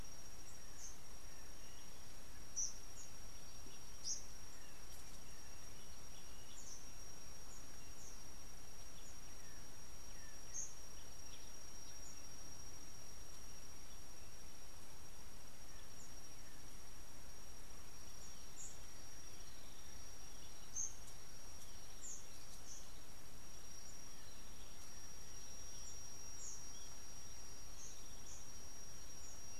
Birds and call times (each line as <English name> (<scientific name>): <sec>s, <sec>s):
Eastern Double-collared Sunbird (Cinnyris mediocris): 4.1s, 20.7s